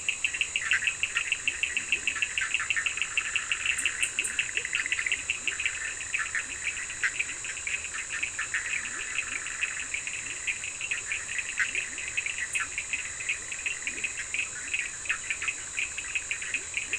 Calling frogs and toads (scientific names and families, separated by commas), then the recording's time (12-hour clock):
Boana bischoffi (Hylidae), Sphaenorhynchus surdus (Hylidae), Leptodactylus latrans (Leptodactylidae)
11:30pm